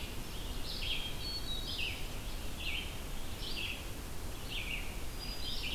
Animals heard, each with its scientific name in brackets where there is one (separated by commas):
Red-eyed Vireo (Vireo olivaceus), Hermit Thrush (Catharus guttatus)